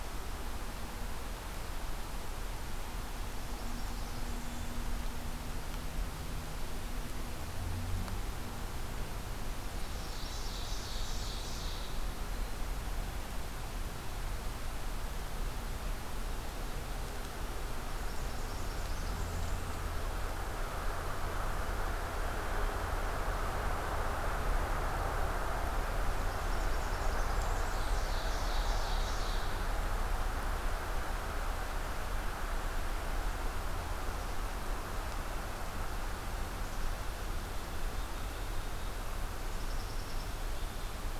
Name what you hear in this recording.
Blackburnian Warbler, Ovenbird, Red-breasted Nuthatch, Black-capped Chickadee